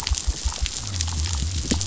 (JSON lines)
{"label": "biophony", "recorder": "SoundTrap 500"}